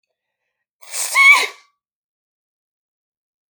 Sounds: Sneeze